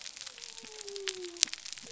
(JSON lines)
{"label": "biophony", "recorder": "SoundTrap 300"}